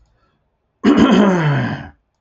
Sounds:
Throat clearing